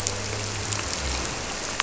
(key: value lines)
label: anthrophony, boat engine
recorder: SoundTrap 300